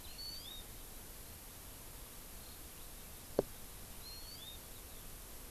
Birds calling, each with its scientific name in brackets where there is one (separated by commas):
Eurasian Skylark (Alauda arvensis), Hawaii Amakihi (Chlorodrepanis virens)